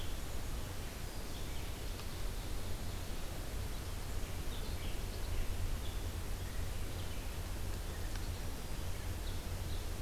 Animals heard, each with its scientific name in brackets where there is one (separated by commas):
Ovenbird (Seiurus aurocapilla), Red-eyed Vireo (Vireo olivaceus), Black-capped Chickadee (Poecile atricapillus)